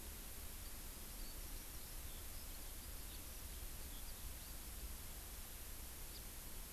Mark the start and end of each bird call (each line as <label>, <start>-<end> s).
Eurasian Skylark (Alauda arvensis), 0.5-4.8 s
House Finch (Haemorhous mexicanus), 6.1-6.2 s